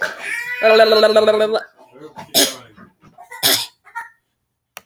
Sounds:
Cough